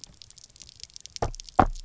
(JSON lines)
{"label": "biophony, knock croak", "recorder": "SoundTrap 300"}